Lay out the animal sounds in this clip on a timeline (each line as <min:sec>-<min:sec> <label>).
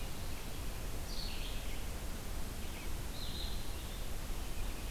0:00.0-0:04.9 Red-eyed Vireo (Vireo olivaceus)